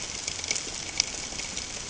{"label": "ambient", "recorder": "HydroMoth"}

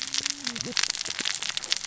{"label": "biophony, cascading saw", "recorder": "SoundTrap 600 or HydroMoth"}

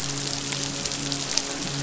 {"label": "biophony, midshipman", "recorder": "SoundTrap 500"}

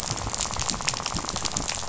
{"label": "biophony, rattle", "recorder": "SoundTrap 500"}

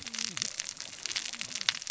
{"label": "biophony, cascading saw", "recorder": "SoundTrap 600 or HydroMoth"}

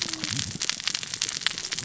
{"label": "biophony, cascading saw", "recorder": "SoundTrap 600 or HydroMoth"}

